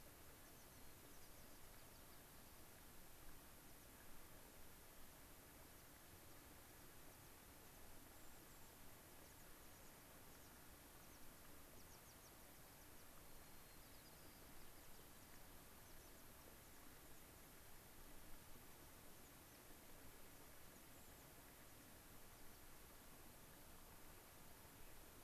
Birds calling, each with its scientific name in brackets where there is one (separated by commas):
unidentified bird, American Pipit (Anthus rubescens), White-crowned Sparrow (Zonotrichia leucophrys)